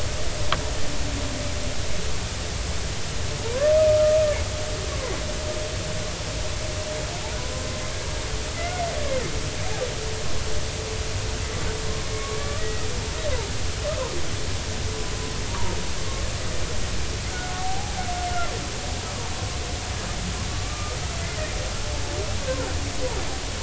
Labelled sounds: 3.4	4.2	humpback whale, 0.86 to 1.3 kHz
8.6	8.8	humpback whale, 1.3 to 1.5 kHz
12.1	12.9	humpback whale, 1.1 to 2.2 kHz
15.5	15.8	humpback whale, 0.86 to 1.2 kHz
17.6	17.9	humpback whale, 0.80 to 0.86 kHz
20.5	21.0	humpback whale, 1.1 to 1.3 kHz

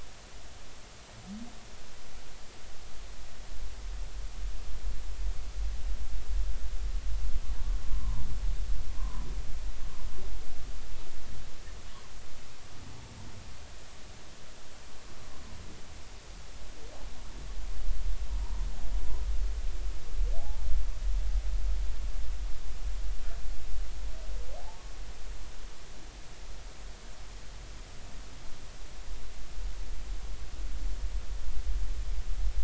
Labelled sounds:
7.9	8.2	humpback whale, 0.90 to 1.2 kHz
9.0	9.3	humpback whale, 0.93 to 1.2 kHz
18.4	18.7	humpback whale, 0.90 to 1.1 kHz
20.4	20.6	humpback whale, 0.80 to 0.93 kHz
24.6	24.8	humpback whale, 0.80 to 0.96 kHz

